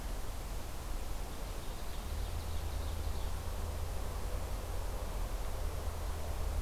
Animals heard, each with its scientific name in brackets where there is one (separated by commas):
Ovenbird (Seiurus aurocapilla)